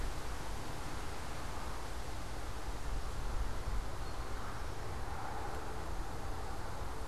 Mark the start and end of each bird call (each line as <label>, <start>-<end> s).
Eastern Towhee (Pipilo erythrophthalmus), 3.9-5.1 s